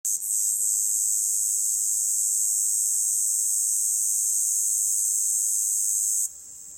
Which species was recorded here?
Tibicina haematodes